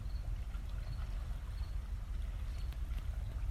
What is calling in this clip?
Gryllus pennsylvanicus, an orthopteran